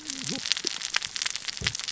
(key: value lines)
label: biophony, cascading saw
recorder: SoundTrap 600 or HydroMoth